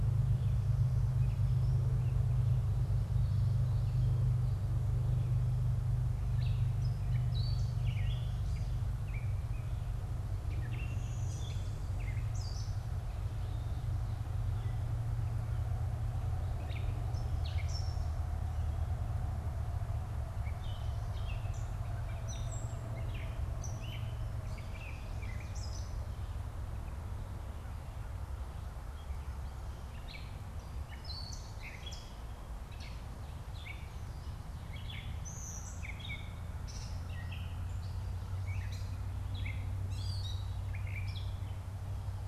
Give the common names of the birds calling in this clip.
Gray Catbird, Blue-winged Warbler